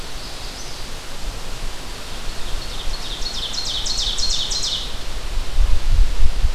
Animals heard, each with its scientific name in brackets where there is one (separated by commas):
Magnolia Warbler (Setophaga magnolia), Ovenbird (Seiurus aurocapilla)